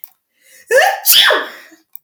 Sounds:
Sneeze